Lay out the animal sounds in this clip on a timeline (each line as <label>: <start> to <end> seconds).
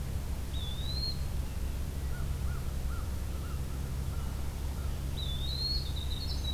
Eastern Wood-Pewee (Contopus virens): 0.4 to 1.3 seconds
American Crow (Corvus brachyrhynchos): 2.0 to 5.1 seconds
Winter Wren (Troglodytes hiemalis): 5.0 to 6.5 seconds
Eastern Wood-Pewee (Contopus virens): 5.1 to 6.0 seconds